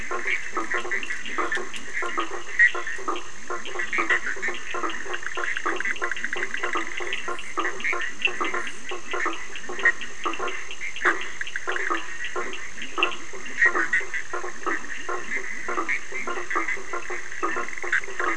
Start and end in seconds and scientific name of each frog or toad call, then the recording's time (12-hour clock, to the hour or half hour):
0.0	18.3	Boana bischoffi
0.0	18.3	Boana faber
0.0	18.3	Leptodactylus latrans
0.3	13.3	Sphaenorhynchus surdus
~10pm